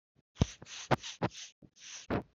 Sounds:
Sniff